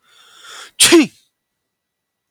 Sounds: Sneeze